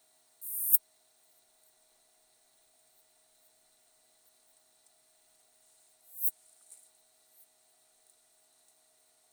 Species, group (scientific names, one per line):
Poecilimon pseudornatus
Orthoptera